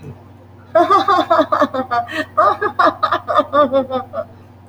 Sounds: Laughter